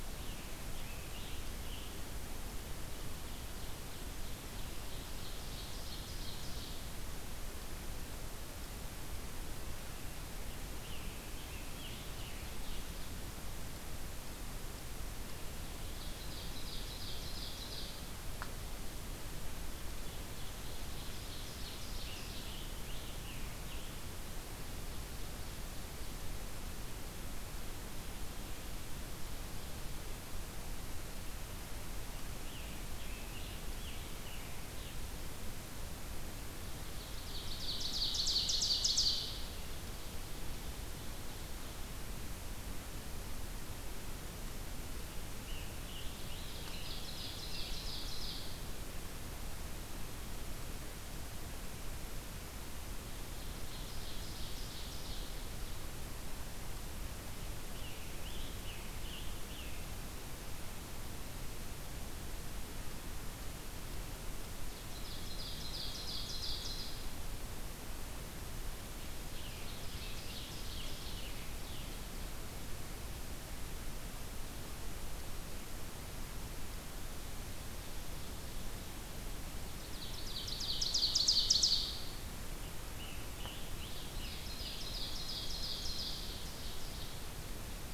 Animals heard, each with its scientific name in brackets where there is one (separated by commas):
Scarlet Tanager (Piranga olivacea), Ovenbird (Seiurus aurocapilla)